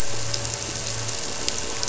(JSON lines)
{"label": "anthrophony, boat engine", "recorder": "SoundTrap 300"}